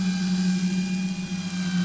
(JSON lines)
{"label": "anthrophony, boat engine", "recorder": "SoundTrap 500"}